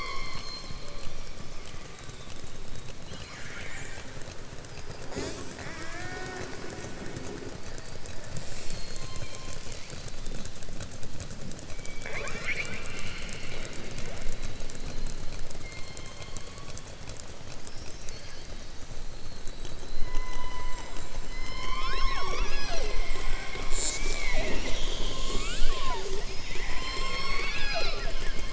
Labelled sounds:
3.0	4.1	killer whale, southern resident, 0.85 to 4.2 kHz
26.5	28.4	killer whale, southern resident, 0.50 to 5.5 kHz

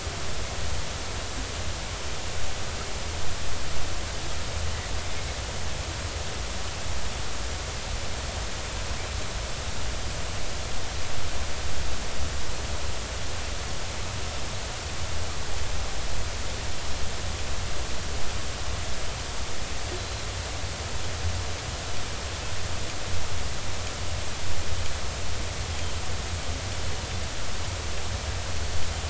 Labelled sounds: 20.0	20.2	Pacific white-sided dolphin, 3.9 to 4.2 kHz
25.7	26.0	Pacific white-sided dolphin, 3.0 to 3.3 kHz

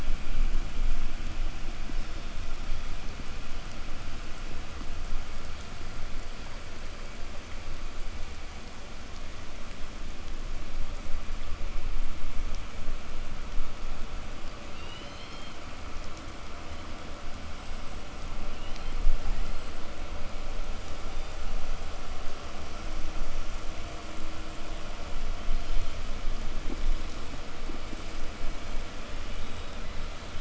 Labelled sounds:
14.5	15.8	killer whale, southern resident, 1.5 to 6.5 kHz
17.4	26.4	killer whale, southern resident, 2.1 to 8.0 kHz
29.0	30.3	killer whale, southern resident, 1.5 to 8.0 kHz

